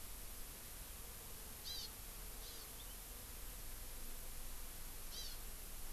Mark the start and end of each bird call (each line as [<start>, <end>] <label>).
[1.62, 1.92] Hawaii Amakihi (Chlorodrepanis virens)
[2.42, 2.62] Hawaii Amakihi (Chlorodrepanis virens)
[5.12, 5.32] Hawaii Amakihi (Chlorodrepanis virens)